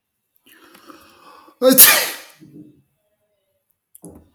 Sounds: Sneeze